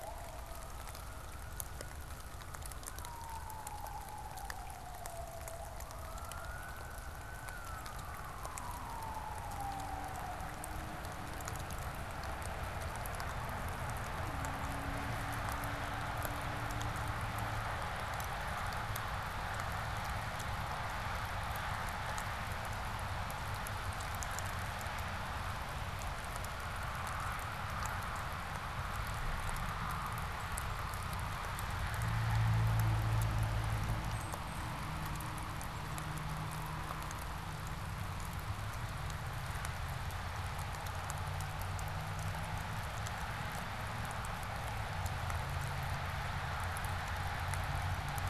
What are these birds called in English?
unidentified bird